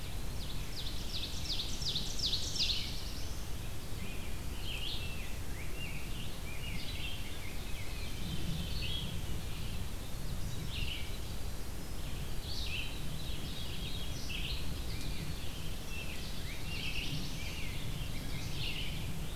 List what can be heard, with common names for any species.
Ovenbird, Red-eyed Vireo, Black-throated Blue Warbler, Rose-breasted Grosbeak, Veery